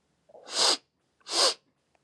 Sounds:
Sniff